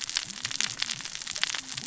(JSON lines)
{"label": "biophony, cascading saw", "recorder": "SoundTrap 600 or HydroMoth"}